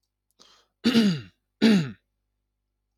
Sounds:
Throat clearing